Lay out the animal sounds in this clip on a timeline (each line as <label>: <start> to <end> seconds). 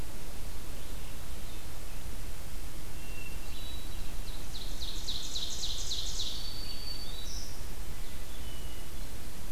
Red-eyed Vireo (Vireo olivaceus): 0.0 to 9.5 seconds
Hermit Thrush (Catharus guttatus): 2.8 to 4.2 seconds
Ovenbird (Seiurus aurocapilla): 4.0 to 6.5 seconds
Black-throated Green Warbler (Setophaga virens): 6.3 to 7.8 seconds
Hermit Thrush (Catharus guttatus): 7.9 to 9.0 seconds